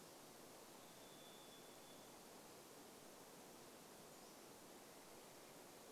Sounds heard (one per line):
Varied Thrush song
Pacific-slope Flycatcher song